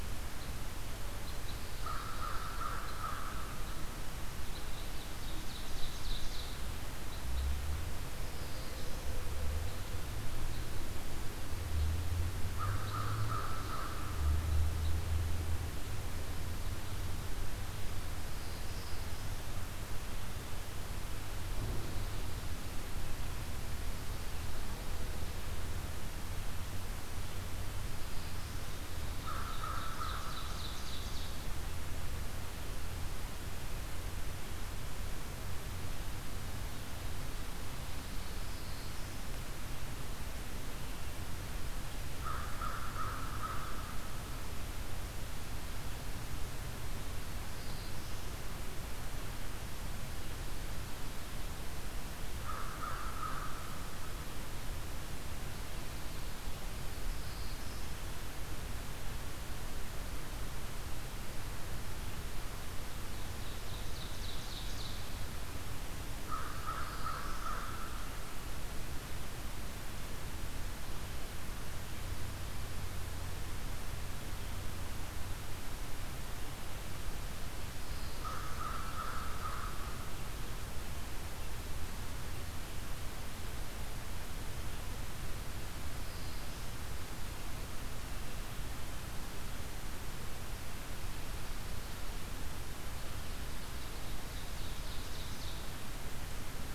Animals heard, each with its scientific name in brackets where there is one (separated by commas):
Black-throated Blue Warbler (Setophaga caerulescens), Black-throated Green Warbler (Setophaga virens), Ovenbird (Seiurus aurocapilla), Pine Warbler (Setophaga pinus), American Crow (Corvus brachyrhynchos)